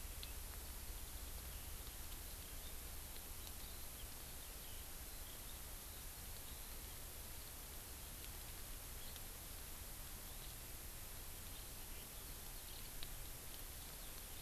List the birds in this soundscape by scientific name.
Alauda arvensis